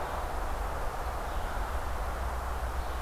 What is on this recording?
Red-eyed Vireo